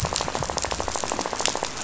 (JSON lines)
{"label": "biophony, rattle", "recorder": "SoundTrap 500"}